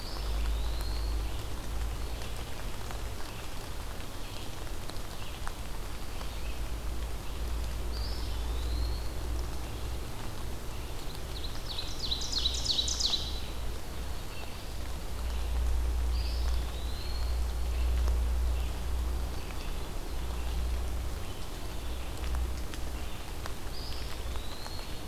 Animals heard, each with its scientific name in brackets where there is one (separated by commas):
Red-eyed Vireo (Vireo olivaceus), Black-throated Blue Warbler (Setophaga caerulescens), Ovenbird (Seiurus aurocapilla), Eastern Wood-Pewee (Contopus virens)